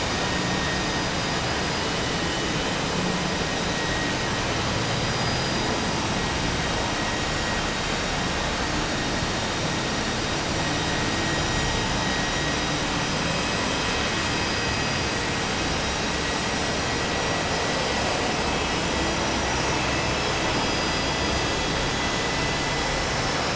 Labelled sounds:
5.1	6.0	vessel noise, 4.8 to 5.9 kHz

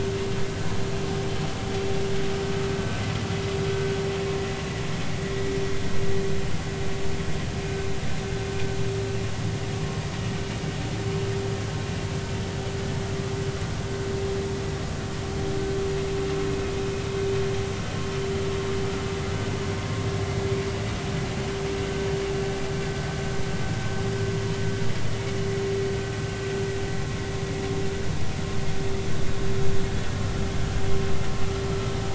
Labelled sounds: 9.7	10.0	vessel noise, 1.0 to 1.2 kHz

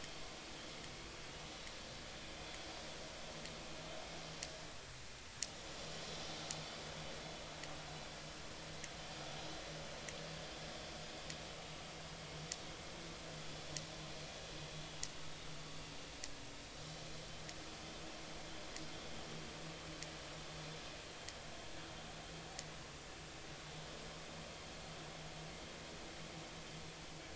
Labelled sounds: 11.5	11.8	vessel noise, 2.8 to 3.1 kHz

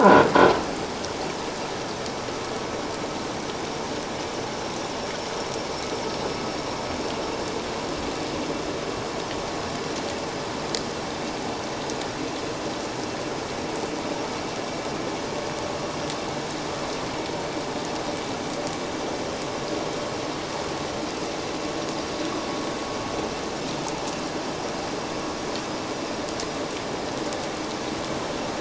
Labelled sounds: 0.0	0.3	croaking sound likely from a nearby submerged object, 1.3 to 1.6 kHz

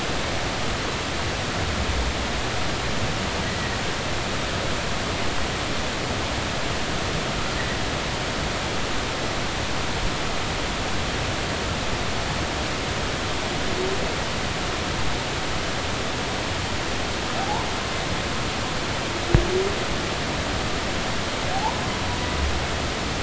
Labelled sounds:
3.4	3.7	humpback whale, 1.8 to 2.0 kHz
21.5	21.8	humpback whale, 0.80 to 1.1 kHz

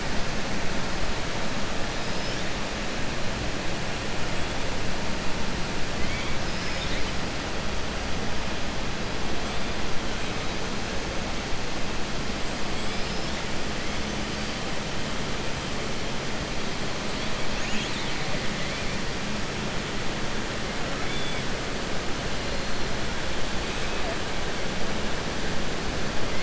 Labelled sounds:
1.9	2.4	killer whale, southern resident, 4.1 to 5.7 kHz
17.5	18.2	killer whale, southern resident, 1.8 to 4.6 kHz

